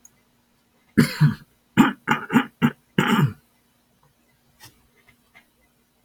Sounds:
Throat clearing